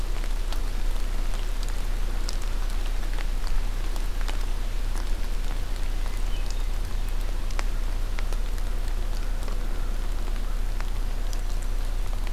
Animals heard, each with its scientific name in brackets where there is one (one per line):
Hermit Thrush (Catharus guttatus)